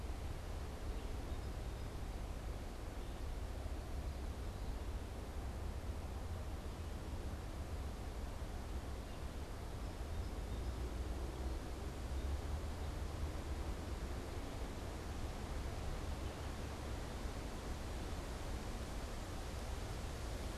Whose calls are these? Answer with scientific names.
Melospiza melodia